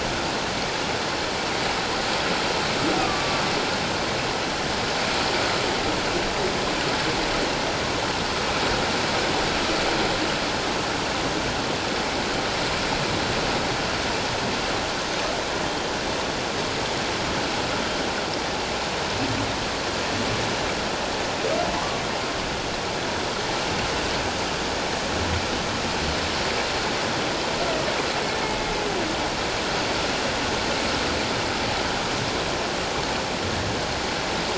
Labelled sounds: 3.0	3.4	humpback whale, 1.1 to 1.3 kHz
21.8	22.0	humpback whale, 0.81 to 1.2 kHz

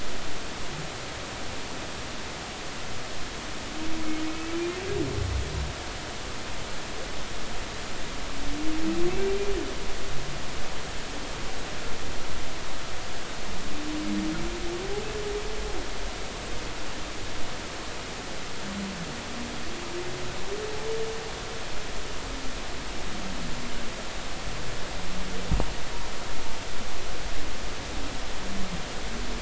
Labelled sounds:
4.5	4.7	humpback whale, 2.2 to 2.5 kHz

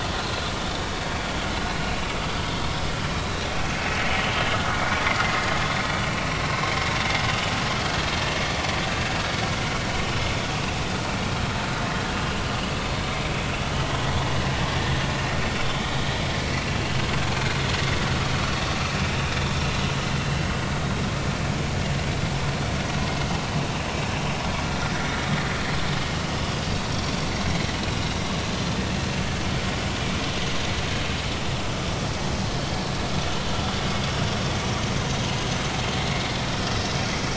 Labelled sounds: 1.5	2.6	vessel noise, 3.1 to 4.1 kHz
3.8	4.0	vessel noise, 2.5 to 2.7 kHz
4.8	5.0	vessel noise, 2.2 to 2.4 kHz
5.8	6.0	vessel noise, 2.1 to 2.4 kHz
8.9	9.2	vessel noise, 1.6 to 1.7 kHz
19.8	20.1	vessel noise, 2.8 to 3.0 kHz
26.9	27.1	vessel noise, 5.5 to 5.7 kHz

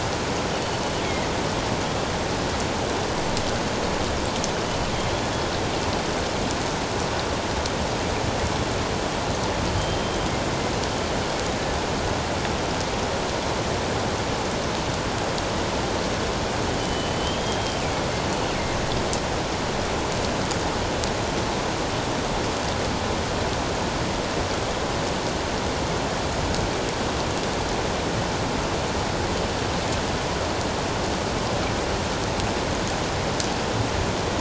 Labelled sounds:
9.8	10.0	killer whale, northern resident, G clan, GG subclan, 3.0 to 3.2 kHz
16.8	17.8	killer whale, northern resident, G clan, GG subclan, 2.9 to 3.3 kHz

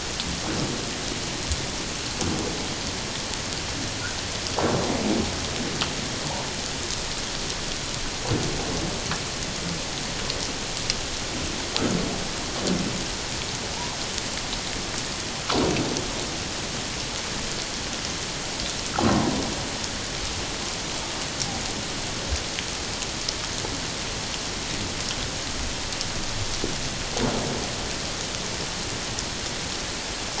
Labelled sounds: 13.7	14.0	humpback whale, 0.81 to 1.1 kHz

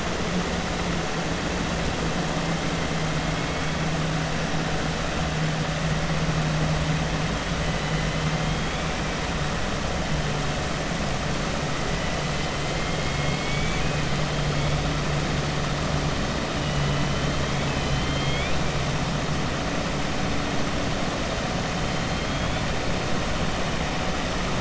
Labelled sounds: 12.7	13.9	killer whale, 1.7 to 3.5 kHz
17.4	18.6	killer whale, 2.0 to 4.3 kHz
22.0	22.6	killer whale, 2.3 to 3.6 kHz

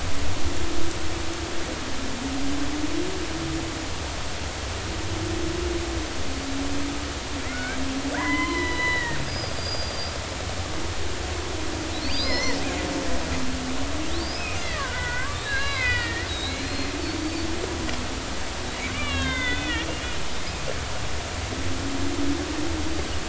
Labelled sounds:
7.5	10.1	killer whale, Bigg's (transient), 0.90 to 5.1 kHz
12.0	12.6	killer whale, Bigg's (transient), 0.90 to 5.4 kHz
14.2	17.5	killer whale, Bigg's (transient), 0.93 to 5.3 kHz
18.9	19.9	killer whale, Bigg's (transient), 0.96 to 3.9 kHz

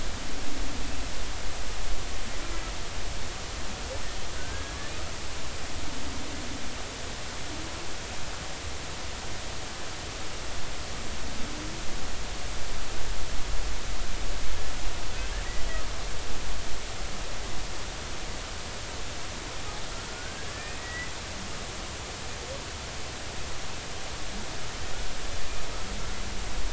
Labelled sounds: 4.3	4.8	humpback whale, 1.4 to 1.7 kHz
20.1	20.5	humpback whale, 1.4 to 1.7 kHz
20.8	21.1	humpback whale, 1.9 to 2.1 kHz

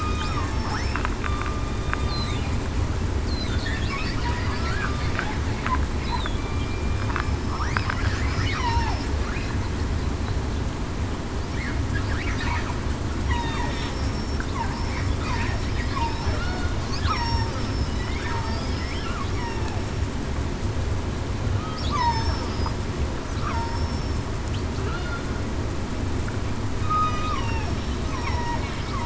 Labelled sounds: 0.5	1.0	killer whale, southern resident, 5.3 to 5.5 kHz
6.3	7.0	killer whale, southern resident, 2.3 to 2.4 kHz
8.6	9.0	killer whale, southern resident, 0.70 to 1.0 kHz
13.6	14.4	killer whale, southern resident, 5.4 to 5.6 kHz
14.7	15.1	killer whale, southern resident, 5.2 to 5.4 kHz
15.7	16.0	killer whale, southern resident, 5.0 to 5.1 kHz
16.4	16.7	killer whale, southern resident, 1.3 to 1.5 kHz
17.1	17.5	killer whale, southern resident, 0.87 to 5.6 kHz
21.9	22.3	killer whale, southern resident, 0.87 to 1.2 kHz
23.7	24.2	killer whale, southern resident, 5.3 to 5.5 kHz
26.8	27.4	killer whale, southern resident, 1.0 to 1.3 kHz

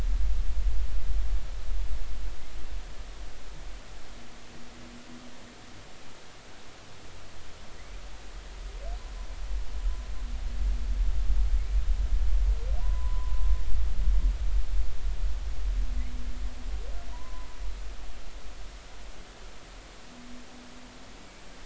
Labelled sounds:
12.8	13.5	humpback whale, 0.93 to 1.1 kHz
17.1	17.5	humpback whale, 0.90 to 1.1 kHz

